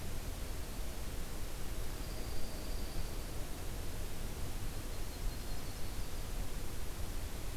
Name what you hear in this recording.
Dark-eyed Junco, Yellow-rumped Warbler